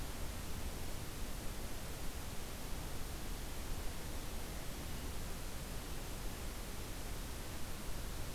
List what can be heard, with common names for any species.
forest ambience